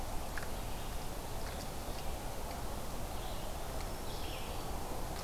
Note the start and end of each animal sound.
0.0s-4.6s: Red-eyed Vireo (Vireo olivaceus)
3.6s-4.8s: Black-throated Green Warbler (Setophaga virens)

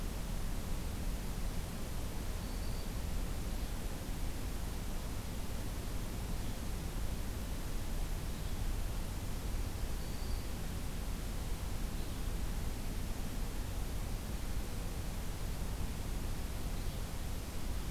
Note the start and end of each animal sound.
2.3s-3.0s: Black-throated Green Warbler (Setophaga virens)
5.9s-17.9s: Red-eyed Vireo (Vireo olivaceus)
9.7s-10.7s: Black-throated Green Warbler (Setophaga virens)

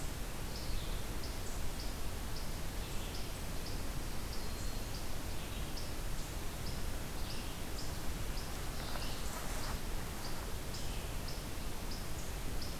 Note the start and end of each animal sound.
4.0s-5.0s: Black-throated Green Warbler (Setophaga virens)

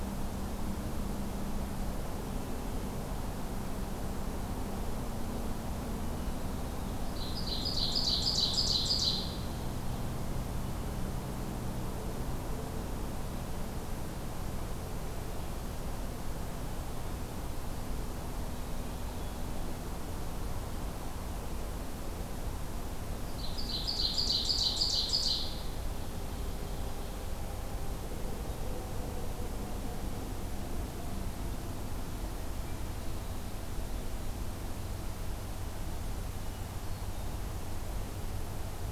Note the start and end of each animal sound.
7.0s-9.6s: Ovenbird (Seiurus aurocapilla)
18.6s-19.4s: Hermit Thrush (Catharus guttatus)
23.3s-27.3s: Ovenbird (Seiurus aurocapilla)
32.5s-33.3s: Hermit Thrush (Catharus guttatus)
36.4s-37.5s: Hermit Thrush (Catharus guttatus)

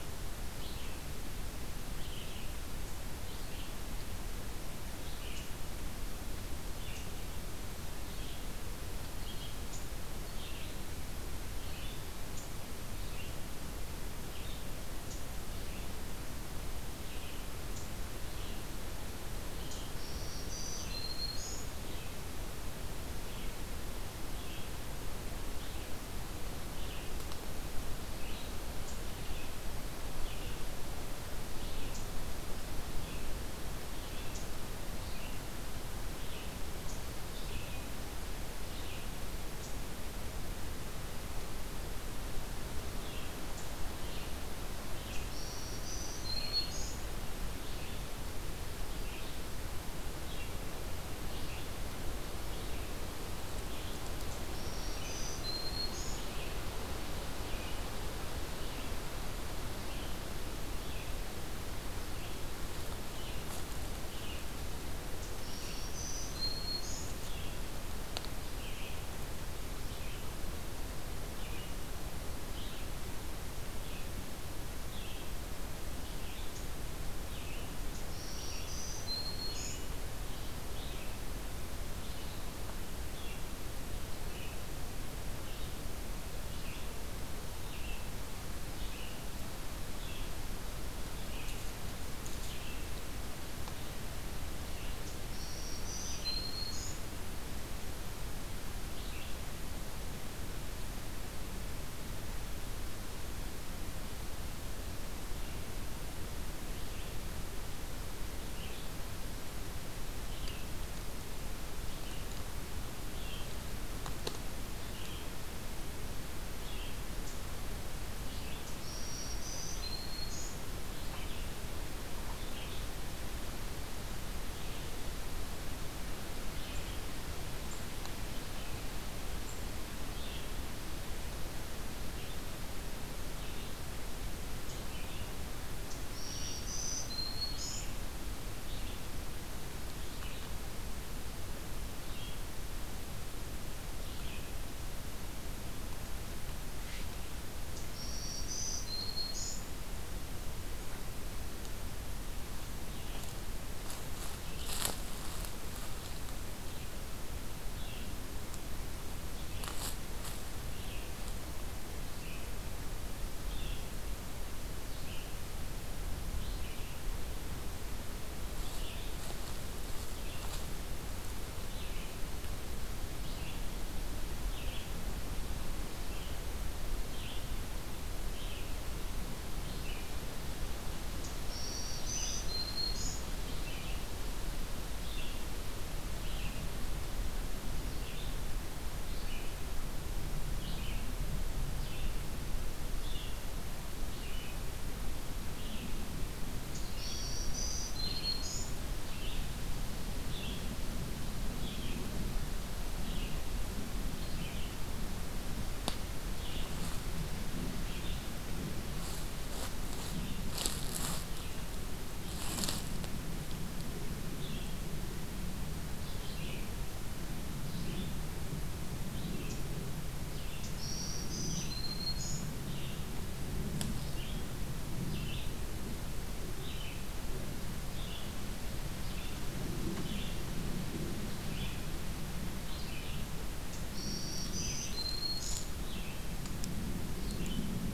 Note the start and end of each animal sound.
0.0s-55.2s: Red-eyed Vireo (Vireo olivaceus)
19.6s-21.7s: Black-throated Green Warbler (Setophaga virens)
45.1s-47.3s: Black-throated Green Warbler (Setophaga virens)
54.3s-56.3s: Black-throated Green Warbler (Setophaga virens)
56.1s-99.6s: Red-eyed Vireo (Vireo olivaceus)
65.2s-67.4s: Black-throated Green Warbler (Setophaga virens)
77.9s-80.2s: Black-throated Green Warbler (Setophaga virens)
95.2s-97.2s: Black-throated Green Warbler (Setophaga virens)
105.2s-147.4s: Red-eyed Vireo (Vireo olivaceus)
118.8s-120.7s: Black-throated Green Warbler (Setophaga virens)
135.9s-138.1s: Black-throated Green Warbler (Setophaga virens)
147.5s-150.0s: Black-throated Green Warbler (Setophaga virens)
152.6s-173.7s: Red-eyed Vireo (Vireo olivaceus)
174.2s-232.1s: Red-eyed Vireo (Vireo olivaceus)
181.3s-183.4s: Black-throated Green Warbler (Setophaga virens)
196.6s-198.8s: Black-throated Green Warbler (Setophaga virens)
220.5s-222.6s: Black-throated Green Warbler (Setophaga virens)
232.5s-237.9s: Red-eyed Vireo (Vireo olivaceus)
233.7s-236.1s: Black-throated Green Warbler (Setophaga virens)

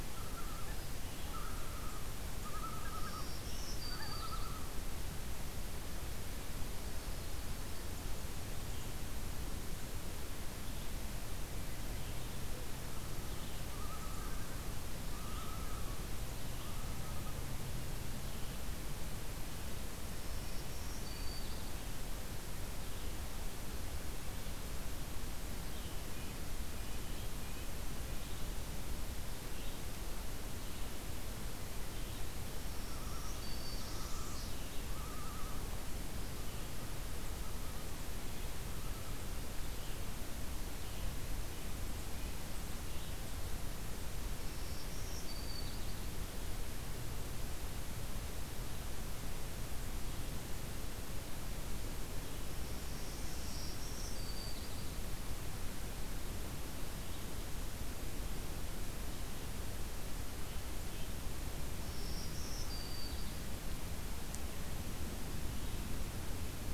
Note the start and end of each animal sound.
0.0s-4.8s: Common Loon (Gavia immer)
2.8s-4.5s: Black-throated Green Warbler (Setophaga virens)
6.5s-8.0s: Yellow-rumped Warbler (Setophaga coronata)
9.4s-16.7s: Red-eyed Vireo (Vireo olivaceus)
13.6s-16.0s: Common Loon (Gavia immer)
19.9s-21.7s: Black-throated Green Warbler (Setophaga virens)
20.2s-21.5s: Red-breasted Nuthatch (Sitta canadensis)
25.5s-32.3s: Red-eyed Vireo (Vireo olivaceus)
26.0s-29.2s: Red-breasted Nuthatch (Sitta canadensis)
32.5s-33.9s: Black-throated Green Warbler (Setophaga virens)
32.7s-35.7s: Common Loon (Gavia immer)
33.3s-34.6s: Northern Parula (Setophaga americana)
39.7s-43.3s: Red-eyed Vireo (Vireo olivaceus)
41.3s-42.5s: Red-breasted Nuthatch (Sitta canadensis)
44.3s-45.8s: Black-throated Green Warbler (Setophaga virens)
52.4s-53.7s: Northern Parula (Setophaga americana)
53.3s-54.8s: Black-throated Green Warbler (Setophaga virens)
61.7s-63.3s: Black-throated Green Warbler (Setophaga virens)

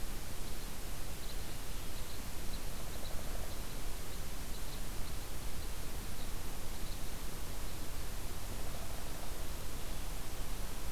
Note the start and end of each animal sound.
0.0s-7.1s: Red Crossbill (Loxia curvirostra)
2.8s-3.7s: Downy Woodpecker (Dryobates pubescens)

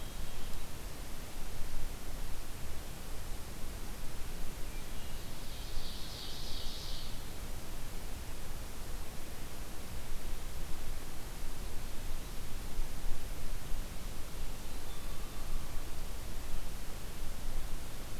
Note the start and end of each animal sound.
4.2s-5.3s: Hermit Thrush (Catharus guttatus)
5.0s-7.1s: Ovenbird (Seiurus aurocapilla)

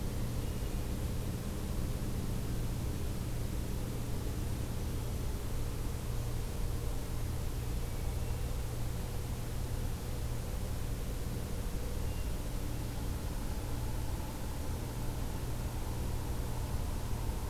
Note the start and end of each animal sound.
0.0s-1.1s: Hermit Thrush (Catharus guttatus)
7.8s-8.8s: Hermit Thrush (Catharus guttatus)
11.9s-12.9s: Hermit Thrush (Catharus guttatus)

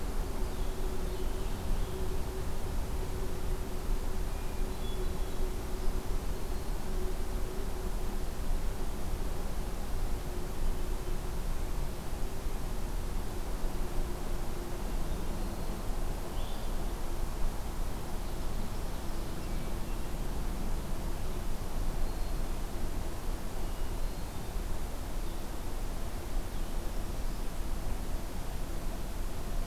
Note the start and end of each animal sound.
0.2s-2.3s: Winter Wren (Troglodytes hiemalis)
4.1s-6.1s: Hermit Thrush (Catharus guttatus)
16.1s-17.1s: Blue-headed Vireo (Vireo solitarius)
18.0s-19.7s: Ovenbird (Seiurus aurocapilla)
21.8s-22.8s: Black-throated Green Warbler (Setophaga virens)
23.1s-24.6s: Hermit Thrush (Catharus guttatus)

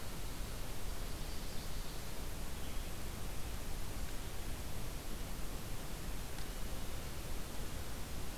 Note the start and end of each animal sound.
0.9s-2.0s: Chestnut-sided Warbler (Setophaga pensylvanica)
2.4s-2.9s: Red-eyed Vireo (Vireo olivaceus)

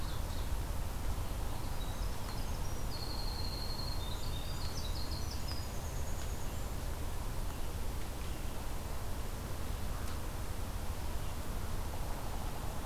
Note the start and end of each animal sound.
0.0s-0.7s: Ovenbird (Seiurus aurocapilla)
1.7s-6.6s: Winter Wren (Troglodytes hiemalis)

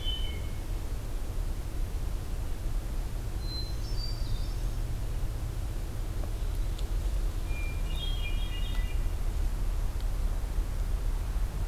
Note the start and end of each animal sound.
0.0s-0.7s: Hermit Thrush (Catharus guttatus)
3.1s-5.0s: Hermit Thrush (Catharus guttatus)
7.3s-9.1s: Hermit Thrush (Catharus guttatus)

